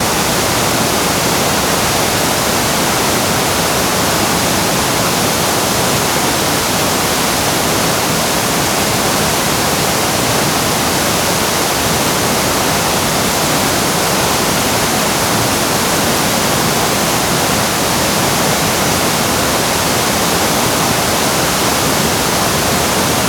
Does this sound like rushing water?
yes